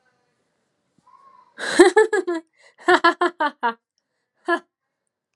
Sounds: Laughter